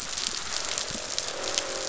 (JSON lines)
{"label": "biophony, croak", "recorder": "SoundTrap 500"}